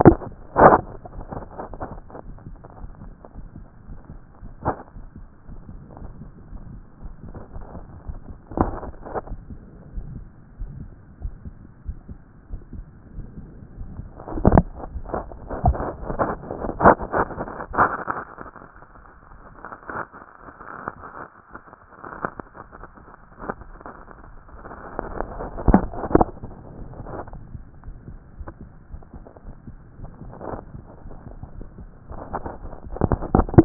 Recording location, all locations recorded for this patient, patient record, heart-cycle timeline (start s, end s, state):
aortic valve (AV)
aortic valve (AV)+pulmonary valve (PV)+tricuspid valve (TV)+mitral valve (MV)
#Age: Adolescent
#Sex: Male
#Height: 165.0 cm
#Weight: 55.7 kg
#Pregnancy status: False
#Murmur: Absent
#Murmur locations: nan
#Most audible location: nan
#Systolic murmur timing: nan
#Systolic murmur shape: nan
#Systolic murmur grading: nan
#Systolic murmur pitch: nan
#Systolic murmur quality: nan
#Diastolic murmur timing: nan
#Diastolic murmur shape: nan
#Diastolic murmur grading: nan
#Diastolic murmur pitch: nan
#Diastolic murmur quality: nan
#Outcome: Abnormal
#Campaign: 2014 screening campaign
0.00	9.28	unannotated
9.28	9.40	S1
9.40	9.50	systole
9.50	9.60	S2
9.60	9.94	diastole
9.94	10.06	S1
10.06	10.16	systole
10.16	10.30	S2
10.30	10.60	diastole
10.60	10.72	S1
10.72	10.80	systole
10.80	10.92	S2
10.92	11.22	diastole
11.22	11.34	S1
11.34	11.46	systole
11.46	11.54	S2
11.54	11.86	diastole
11.86	11.98	S1
11.98	12.10	systole
12.10	12.18	S2
12.18	12.50	diastole
12.50	12.62	S1
12.62	12.74	systole
12.74	12.86	S2
12.86	13.16	diastole
13.16	13.26	S1
13.26	13.40	systole
13.40	13.52	S2
13.52	13.78	diastole
13.78	13.90	S1
13.90	13.98	systole
13.98	14.08	S2
14.08	14.32	diastole
14.32	33.65	unannotated